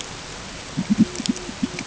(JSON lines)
{"label": "ambient", "recorder": "HydroMoth"}